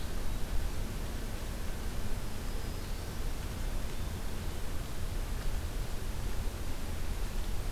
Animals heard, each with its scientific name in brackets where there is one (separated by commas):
Black-throated Green Warbler (Setophaga virens)